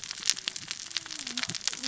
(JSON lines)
{"label": "biophony, cascading saw", "recorder": "SoundTrap 600 or HydroMoth"}